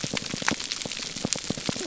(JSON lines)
{"label": "biophony, pulse", "recorder": "SoundTrap 300"}